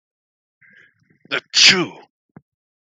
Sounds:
Sneeze